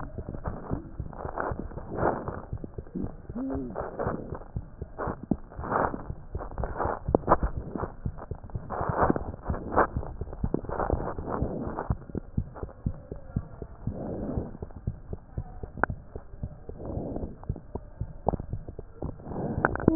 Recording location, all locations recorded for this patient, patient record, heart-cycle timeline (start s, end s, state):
mitral valve (MV)
aortic valve (AV)+pulmonary valve (PV)+tricuspid valve (TV)+mitral valve (MV)
#Age: Child
#Sex: Male
#Height: 93.0 cm
#Weight: 13.4 kg
#Pregnancy status: False
#Murmur: Present
#Murmur locations: aortic valve (AV)+mitral valve (MV)+pulmonary valve (PV)+tricuspid valve (TV)
#Most audible location: tricuspid valve (TV)
#Systolic murmur timing: Holosystolic
#Systolic murmur shape: Decrescendo
#Systolic murmur grading: II/VI
#Systolic murmur pitch: Low
#Systolic murmur quality: Harsh
#Diastolic murmur timing: nan
#Diastolic murmur shape: nan
#Diastolic murmur grading: nan
#Diastolic murmur pitch: nan
#Diastolic murmur quality: nan
#Outcome: Abnormal
#Campaign: 2015 screening campaign
0.00	12.21	unannotated
12.21	12.33	diastole
12.33	12.48	S1
12.48	12.58	systole
12.58	12.68	S2
12.68	12.82	diastole
12.82	12.94	S1
12.94	13.04	systole
13.04	13.16	S2
13.16	13.32	diastole
13.32	13.44	S1
13.44	13.58	systole
13.58	13.68	S2
13.68	13.84	diastole
13.84	13.96	S1
13.96	14.06	systole
14.06	14.20	S2
14.20	14.32	diastole
14.32	14.46	S1
14.46	14.59	systole
14.59	14.69	S2
14.69	14.82	diastole
14.82	14.94	S1
14.94	15.09	systole
15.09	15.20	S2
15.20	15.35	diastole
15.35	15.45	S1
15.45	15.59	systole
15.59	15.67	S2
15.67	15.86	diastole
15.86	15.98	S1
15.98	16.14	systole
16.14	16.22	S2
16.22	16.40	diastole
16.40	16.52	S1
16.52	16.67	systole
16.67	16.77	S2
16.77	16.94	diastole
16.94	17.10	S1
17.10	17.20	systole
17.20	17.32	S2
17.32	17.46	diastole
17.46	17.59	S1
17.59	17.73	systole
17.73	17.82	S2
17.82	17.99	diastole
17.99	18.08	S1
18.08	18.13	systole
18.13	19.95	unannotated